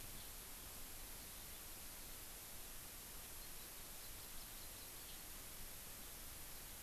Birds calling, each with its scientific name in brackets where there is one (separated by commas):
Hawaii Amakihi (Chlorodrepanis virens)